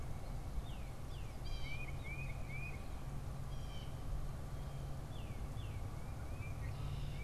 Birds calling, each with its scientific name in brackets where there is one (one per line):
Northern Cardinal (Cardinalis cardinalis)
Tufted Titmouse (Baeolophus bicolor)
Blue Jay (Cyanocitta cristata)
Red-winged Blackbird (Agelaius phoeniceus)